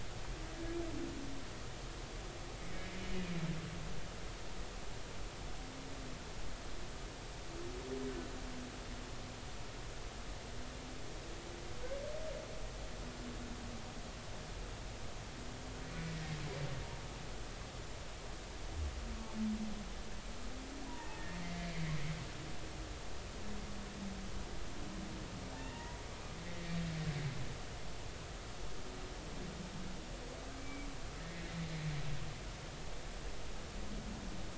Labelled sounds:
25.6	26.0	humpback whale, 0.90 to 2.8 kHz
31.2	31.9	humpback whale, 1.8 to 2.4 kHz

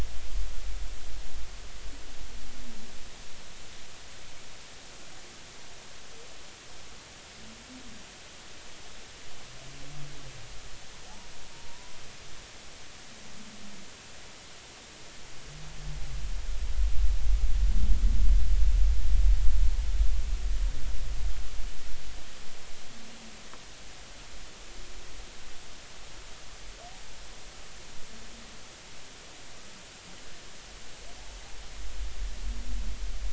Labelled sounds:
11.5	12.0	humpback whale, 0.90 to 1.0 kHz

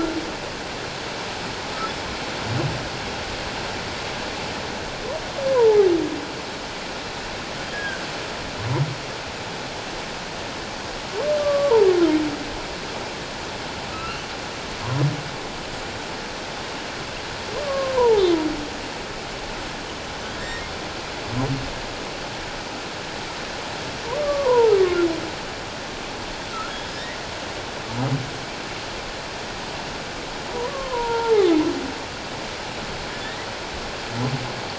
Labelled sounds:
5.5	5.8	humpback whale, 0.81 to 1.1 kHz
7.7	8.0	humpback whale, 1.5 to 1.7 kHz
11.4	11.9	humpback whale, 0.78 to 1.2 kHz
13.9	14.2	humpback whale, 1.2 to 2.8 kHz
17.6	18.2	humpback whale, 0.78 to 1.2 kHz
20.4	20.6	humpback whale, 1.8 to 1.9 kHz
24.2	24.7	humpback whale, 0.84 to 1.2 kHz
30.5	31.5	humpback whale, 0.78 to 1.4 kHz

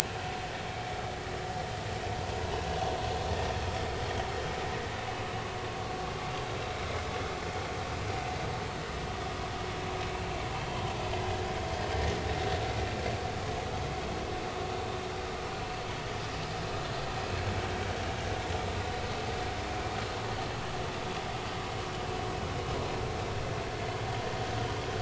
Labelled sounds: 0.0	0.3	vessel noise, 2.4 to 2.7 kHz

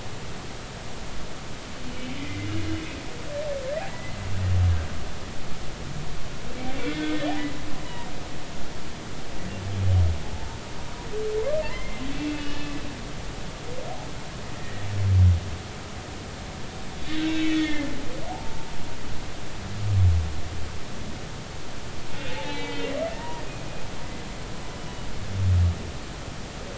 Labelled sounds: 1.9	2.5	humpback whale, 2.0 to 3.1 kHz
3.9	4.2	humpback whale, 1.9 to 2.1 kHz
6.8	8.1	humpback whale, 1.8 to 4.0 kHz
10.3	10.6	humpback whale, 0.83 to 0.96 kHz
11.6	12.8	humpback whale, 0.83 to 3.0 kHz
14.5	14.9	humpback whale, 1.8 to 2.0 kHz
17.2	17.9	humpback whale, 1.7 to 3.8 kHz
18.3	18.7	humpback whale, 0.80 to 0.93 kHz
22.3	23.4	humpback whale, 0.83 to 3.8 kHz
24.8	25.1	humpback whale, 2.9 to 3.0 kHz

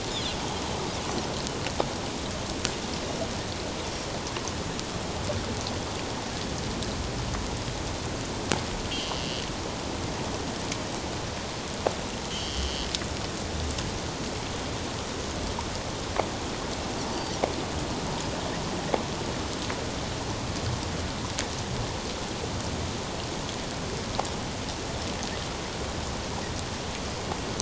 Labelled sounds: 8.9	9.5	Pacific white-sided dolphin, 2.7 to 3.3 kHz
12.3	12.9	Pacific white-sided dolphin, 2.8 to 3.3 kHz
17.1	17.4	Pacific white-sided dolphin, 4.4 to 4.7 kHz

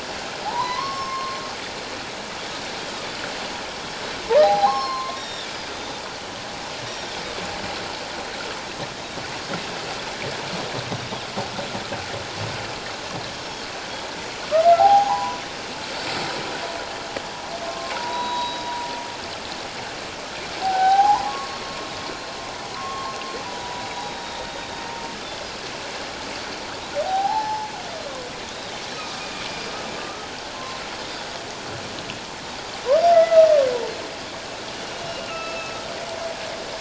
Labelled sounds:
0.4	1.4	humpback whale, 0.78 to 2.2 kHz
0.8	1.4	Pacific white-sided dolphin, 4.2 to 6.5 kHz
4.4	4.7	humpback whale, 3.8 to 4.1 kHz
4.4	6.0	Pacific white-sided dolphin, 0.78 to 5.7 kHz
6.9	7.1	Pacific white-sided dolphin, 3.5 to 5.7 kHz
14.8	15.4	humpback whale, 0.78 to 1.1 kHz
15.2	15.4	Pacific white-sided dolphin, 5.8 to 5.9 kHz
17.6	18.7	humpback whale, 0.81 to 4.0 kHz
20.6	21.6	humpback whale, 0.78 to 3.4 kHz
22.7	23.1	humpback whale, 0.97 to 1.2 kHz
23.4	24.8	humpback whale, 0.94 to 4.0 kHz
27.0	27.7	humpback whale, 0.78 to 1.0 kHz
29.0	29.2	humpback whale, 1.2 to 1.3 kHz
30.0	30.8	humpback whale, 1.0 to 1.3 kHz
33.1	33.5	humpback whale, 1.2 to 2.1 kHz
34.9	35.7	humpback whale, 1.2 to 2.9 kHz

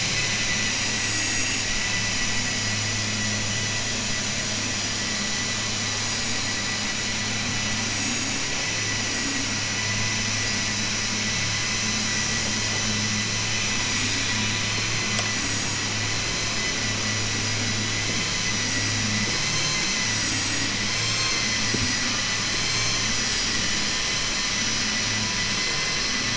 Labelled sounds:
19.2	19.9	vessel noise, 1.0 to 5.1 kHz

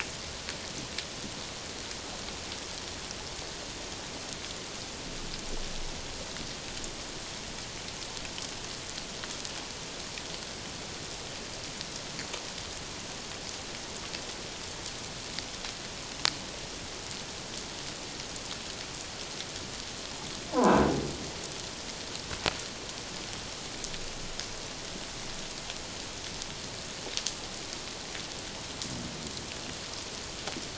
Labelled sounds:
20.5	20.8	croaking sound likely from a nearby submerged object, 0.78 to 1.1 kHz

